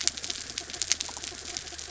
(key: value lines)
label: anthrophony, mechanical
recorder: SoundTrap 300